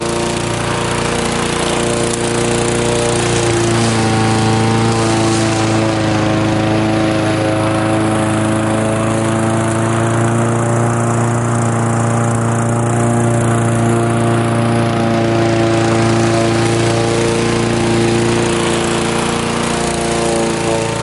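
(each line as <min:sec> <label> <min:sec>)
0:00.1 A lawnmower runs nearby and then moves farther away with a constant sound. 0:21.0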